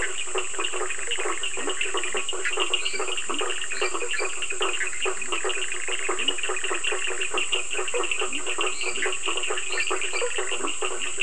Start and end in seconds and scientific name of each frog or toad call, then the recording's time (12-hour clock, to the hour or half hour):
0.0	7.3	Boana bischoffi
0.0	11.2	Boana faber
0.0	11.2	Leptodactylus latrans
0.0	11.2	Sphaenorhynchus surdus
2.6	4.5	Dendropsophus minutus
8.6	10.6	Dendropsophus minutus
8.9	11.2	Boana bischoffi
~10pm